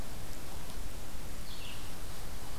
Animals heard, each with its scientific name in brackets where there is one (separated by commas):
Red-eyed Vireo (Vireo olivaceus)